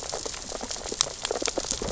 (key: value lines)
label: biophony, sea urchins (Echinidae)
recorder: SoundTrap 600 or HydroMoth